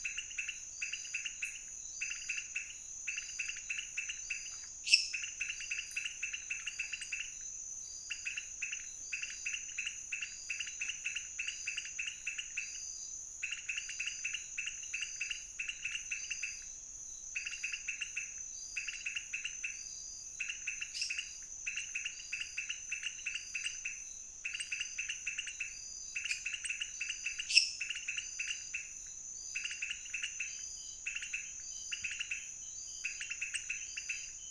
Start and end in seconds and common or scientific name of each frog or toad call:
0.0	34.5	pointedbelly frog
4.7	5.3	lesser tree frog
20.8	21.6	lesser tree frog
27.5	27.8	lesser tree frog